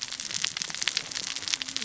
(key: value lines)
label: biophony, cascading saw
recorder: SoundTrap 600 or HydroMoth